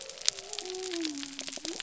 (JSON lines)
{"label": "biophony", "recorder": "SoundTrap 300"}